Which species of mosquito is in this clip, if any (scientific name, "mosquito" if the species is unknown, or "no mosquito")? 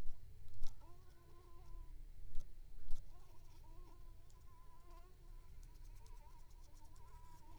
Culex pipiens complex